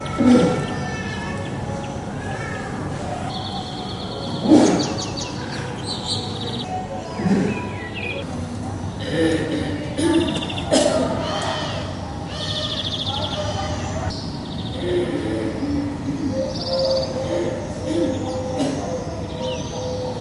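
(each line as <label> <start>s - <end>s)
Multiple birds chirping constantly in the background. 0.0s - 20.2s
A person clears their throat. 0.1s - 0.8s
A person clearing their throat. 4.4s - 5.2s
A person clearing their throat. 7.1s - 7.8s
People clearing their throats and slightly coughing. 8.9s - 12.1s
A crow caws multiple times in succession. 11.5s - 14.2s
People clearing their throats and slightly coughing. 14.7s - 19.2s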